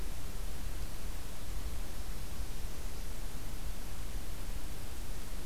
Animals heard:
forest ambience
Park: Acadia National Park